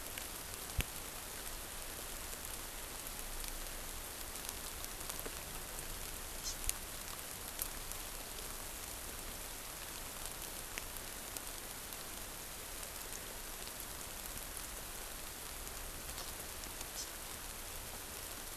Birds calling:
Hawaii Amakihi (Chlorodrepanis virens)

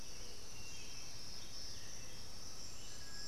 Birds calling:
Striped Cuckoo (Tapera naevia)
Black-billed Thrush (Turdus ignobilis)

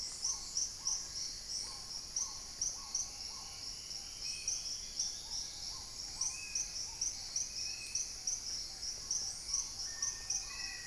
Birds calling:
Black-faced Antthrush (Formicarius analis)
Spot-winged Antshrike (Pygiptila stellaris)
Hauxwell's Thrush (Turdus hauxwelli)
Dusky-throated Antshrike (Thamnomanes ardesiacus)
Black-tailed Trogon (Trogon melanurus)
Paradise Tanager (Tangara chilensis)
unidentified bird

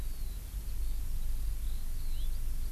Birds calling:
Eurasian Skylark (Alauda arvensis)

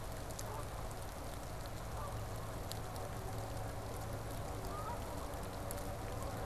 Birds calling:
Canada Goose (Branta canadensis)

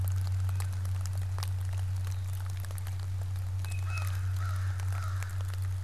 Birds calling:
American Crow (Corvus brachyrhynchos)
Tufted Titmouse (Baeolophus bicolor)

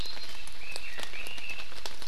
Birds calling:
Red-billed Leiothrix (Leiothrix lutea)

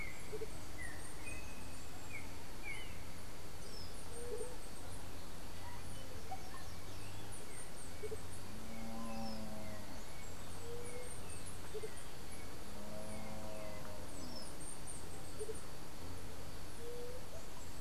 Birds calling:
White-tipped Dove (Leptotila verreauxi)
Andean Motmot (Momotus aequatorialis)
Chestnut-capped Brushfinch (Arremon brunneinucha)
Yellow-backed Oriole (Icterus chrysater)
Russet-backed Oropendola (Psarocolius angustifrons)

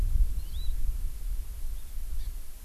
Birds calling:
Hawaii Amakihi (Chlorodrepanis virens)

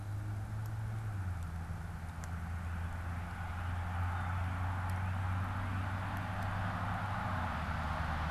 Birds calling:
Blue Jay (Cyanocitta cristata)
Northern Cardinal (Cardinalis cardinalis)

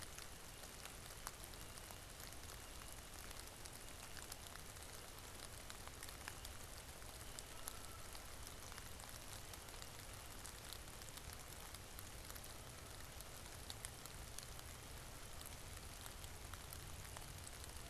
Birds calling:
Canada Goose (Branta canadensis)

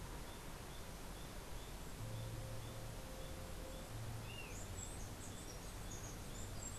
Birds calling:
Chestnut-capped Brushfinch (Arremon brunneinucha)
Black-chested Jay (Cyanocorax affinis)

